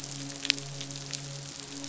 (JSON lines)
{"label": "biophony, midshipman", "recorder": "SoundTrap 500"}